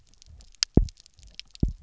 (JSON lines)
{"label": "biophony, double pulse", "recorder": "SoundTrap 300"}